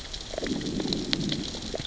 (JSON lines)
{"label": "biophony, growl", "recorder": "SoundTrap 600 or HydroMoth"}